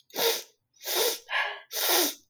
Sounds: Sniff